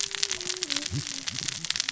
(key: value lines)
label: biophony, cascading saw
recorder: SoundTrap 600 or HydroMoth